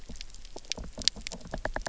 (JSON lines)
{"label": "biophony, knock", "recorder": "SoundTrap 300"}